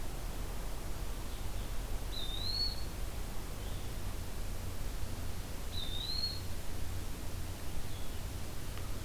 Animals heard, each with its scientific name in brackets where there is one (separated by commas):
Blue-headed Vireo (Vireo solitarius), Eastern Wood-Pewee (Contopus virens)